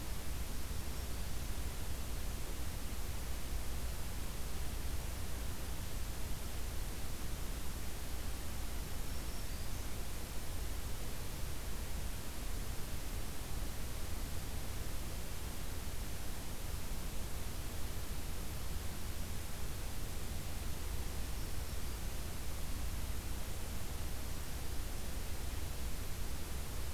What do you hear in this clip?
Black-throated Green Warbler